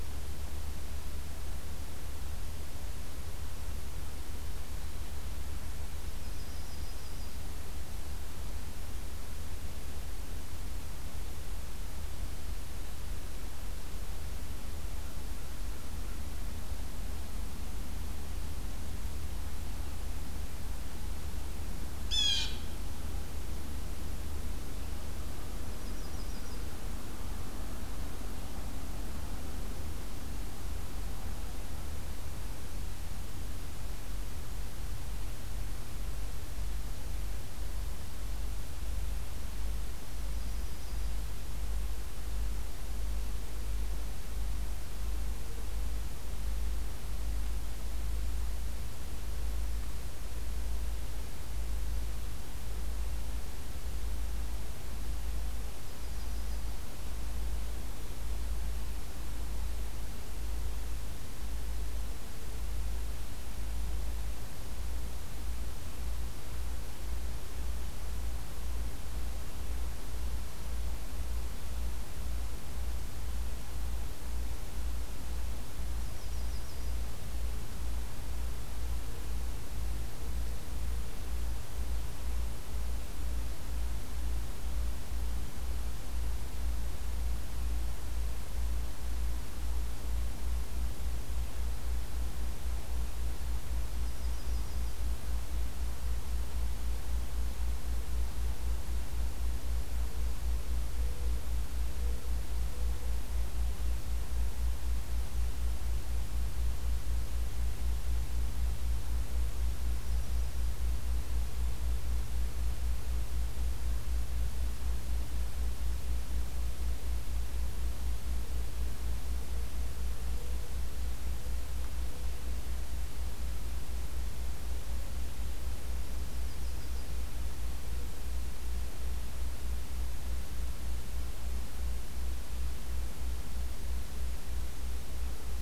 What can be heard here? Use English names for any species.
Yellow-rumped Warbler, Blue Jay